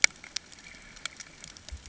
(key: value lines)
label: ambient
recorder: HydroMoth